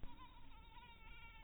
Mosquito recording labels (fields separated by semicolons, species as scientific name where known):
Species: mosquito; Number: one; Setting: cup